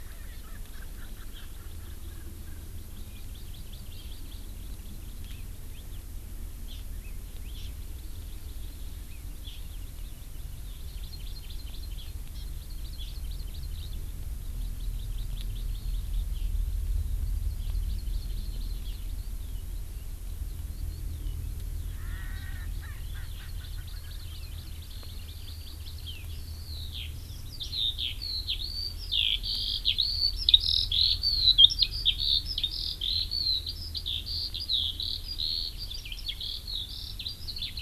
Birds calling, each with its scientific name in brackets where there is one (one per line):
Erckel's Francolin (Pternistis erckelii)
Eurasian Skylark (Alauda arvensis)
Hawaii Amakihi (Chlorodrepanis virens)